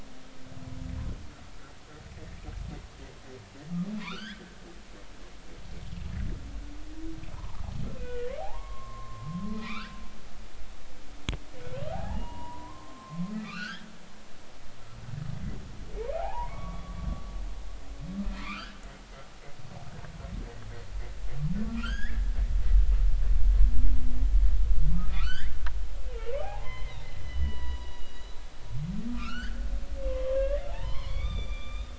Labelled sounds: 4.0	5.4	humpback whale, 0.90 to 5.1 kHz
7.3	7.6	humpback whale, 0.80 to 1.1 kHz
8.0	10.0	humpback whale, 0.80 to 2.9 kHz
11.9	13.9	humpback whale, 0.80 to 4.9 kHz
16.1	17.0	humpback whale, 0.80 to 2.3 kHz
18.4	18.8	humpback whale, 0.99 to 3.2 kHz
21.7	22.2	humpback whale, 1.2 to 5.3 kHz
24.9	28.4	humpback whale, 0.80 to 5.2 kHz
29.1	29.6	humpback whale, 1.1 to 3.3 kHz
30.1	31.9	humpback whale, 0.80 to 4.9 kHz

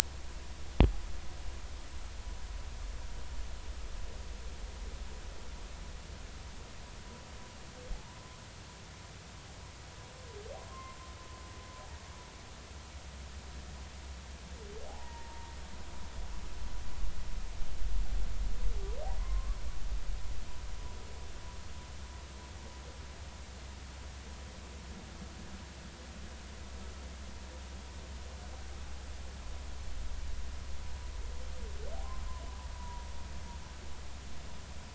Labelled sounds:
7.9	8.4	humpback whale, 0.80 to 1.2 kHz
10.7	11.0	humpback whale, 0.99 to 1.1 kHz
14.9	15.5	humpback whale, 0.80 to 0.99 kHz
19.2	19.6	humpback whale, 0.96 to 1.2 kHz
32.8	33.0	humpback whale, 0.90 to 1.0 kHz

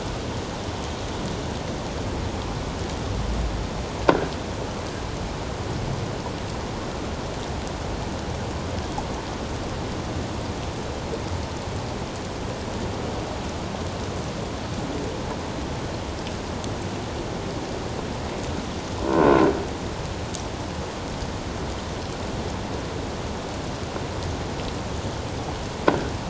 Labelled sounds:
19.1	19.5	croaking sound likely from a nearby submerged object, 1.4 to 1.7 kHz

